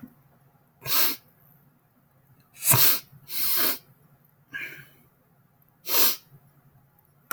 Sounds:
Sniff